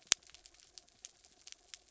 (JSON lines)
{"label": "anthrophony, mechanical", "recorder": "SoundTrap 300"}